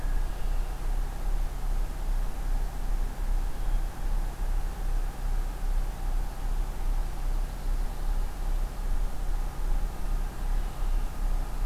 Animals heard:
forest ambience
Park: Acadia National Park